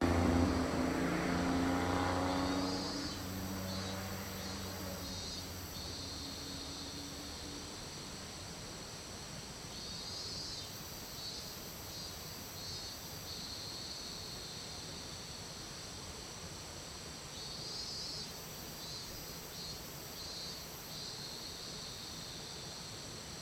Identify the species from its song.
Hyalessa maculaticollis